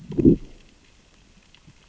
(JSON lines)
{"label": "biophony, growl", "recorder": "SoundTrap 600 or HydroMoth"}